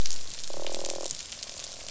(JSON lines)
{"label": "biophony, croak", "recorder": "SoundTrap 500"}